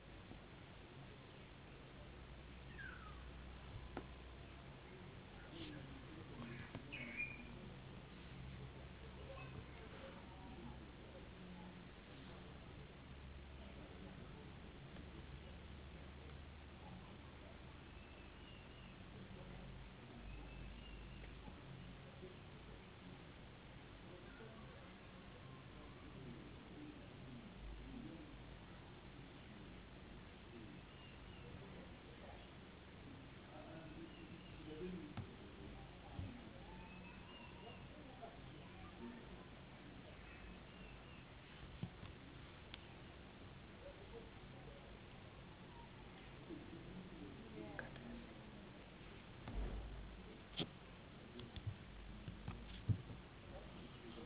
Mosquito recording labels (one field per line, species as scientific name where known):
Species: no mosquito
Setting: insect culture